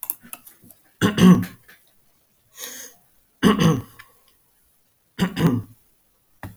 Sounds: Throat clearing